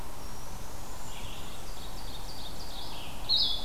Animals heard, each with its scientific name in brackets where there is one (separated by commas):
Ovenbird (Seiurus aurocapilla), Red-eyed Vireo (Vireo olivaceus), unidentified call, Blackburnian Warbler (Setophaga fusca)